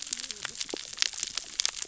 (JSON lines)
{"label": "biophony, cascading saw", "recorder": "SoundTrap 600 or HydroMoth"}